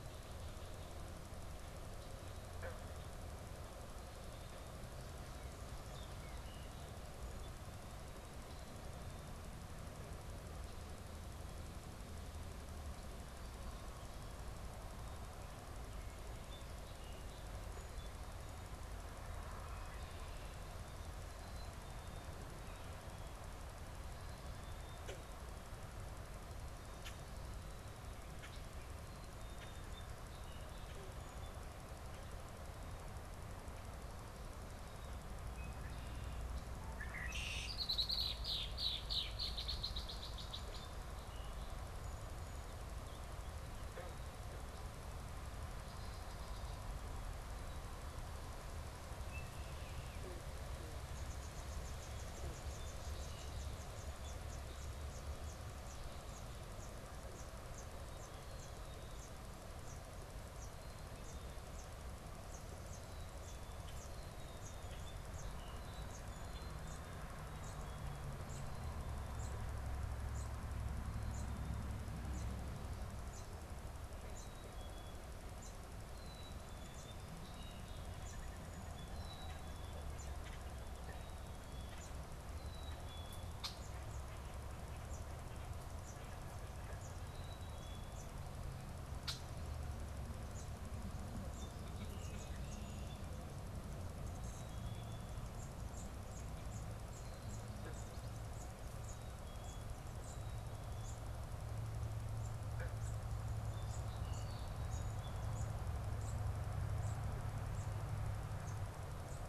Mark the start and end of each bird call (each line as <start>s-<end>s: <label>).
15.9s-18.5s: Song Sparrow (Melospiza melodia)
21.2s-22.3s: Black-capped Chickadee (Poecile atricapillus)
24.9s-27.2s: unidentified bird
28.4s-31.1s: unidentified bird
29.4s-31.8s: Song Sparrow (Melospiza melodia)
35.3s-36.5s: Red-winged Blackbird (Agelaius phoeniceus)
36.8s-41.0s: Red-winged Blackbird (Agelaius phoeniceus)
45.5s-47.0s: Red-winged Blackbird (Agelaius phoeniceus)
49.2s-50.4s: Baltimore Oriole (Icterus galbula)
51.0s-109.5s: unidentified bird
74.2s-95.5s: Black-capped Chickadee (Poecile atricapillus)
83.5s-83.9s: Red-winged Blackbird (Agelaius phoeniceus)
89.2s-89.5s: Red-winged Blackbird (Agelaius phoeniceus)
97.2s-109.5s: Black-capped Chickadee (Poecile atricapillus)